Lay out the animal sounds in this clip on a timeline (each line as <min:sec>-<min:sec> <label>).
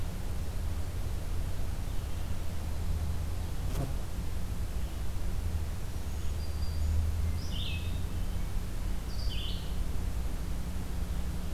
0:05.9-0:07.1 Black-throated Green Warbler (Setophaga virens)
0:07.1-0:08.2 Hermit Thrush (Catharus guttatus)
0:07.3-0:09.9 Red-eyed Vireo (Vireo olivaceus)